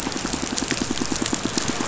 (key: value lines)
label: biophony, pulse
recorder: SoundTrap 500